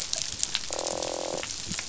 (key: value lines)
label: biophony, croak
recorder: SoundTrap 500